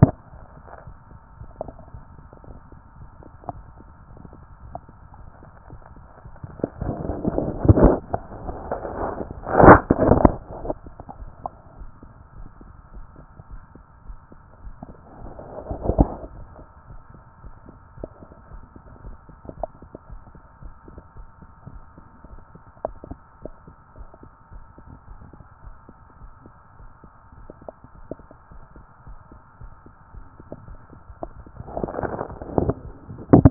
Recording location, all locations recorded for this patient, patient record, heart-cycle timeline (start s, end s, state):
tricuspid valve (TV)
pulmonary valve (PV)+tricuspid valve (TV)+mitral valve (MV)
#Age: Adolescent
#Sex: Female
#Height: nan
#Weight: nan
#Pregnancy status: False
#Murmur: Absent
#Murmur locations: nan
#Most audible location: nan
#Systolic murmur timing: nan
#Systolic murmur shape: nan
#Systolic murmur grading: nan
#Systolic murmur pitch: nan
#Systolic murmur quality: nan
#Diastolic murmur timing: nan
#Diastolic murmur shape: nan
#Diastolic murmur grading: nan
#Diastolic murmur pitch: nan
#Diastolic murmur quality: nan
#Outcome: Normal
#Campaign: 2014 screening campaign
0.00	0.81	unannotated
0.81	0.86	diastole
0.86	0.96	S1
0.96	1.10	systole
1.10	1.20	S2
1.20	1.40	diastole
1.40	1.50	S1
1.50	1.64	systole
1.64	1.74	S2
1.74	1.94	diastole
1.94	2.04	S1
2.04	2.18	systole
2.18	2.28	S2
2.28	2.48	diastole
2.48	2.58	S1
2.58	2.72	systole
2.72	2.82	S2
2.82	3.00	diastole
3.00	3.10	S1
3.10	3.20	systole
3.20	3.32	S2
3.32	3.50	diastole
3.50	3.64	S1
3.64	3.78	systole
3.78	3.88	S2
3.88	4.12	diastole
4.12	33.50	unannotated